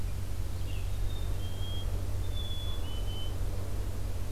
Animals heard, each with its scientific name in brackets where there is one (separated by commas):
Black-capped Chickadee (Poecile atricapillus), Red-eyed Vireo (Vireo olivaceus)